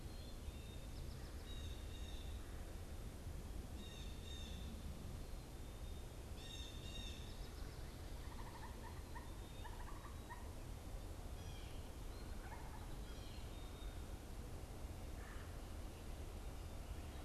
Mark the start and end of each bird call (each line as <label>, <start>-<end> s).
Black-capped Chickadee (Poecile atricapillus), 0.0-1.0 s
Blue Jay (Cyanocitta cristata), 0.3-7.6 s
Blue Jay (Cyanocitta cristata), 11.3-14.1 s